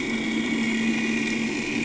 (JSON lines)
{"label": "anthrophony, boat engine", "recorder": "HydroMoth"}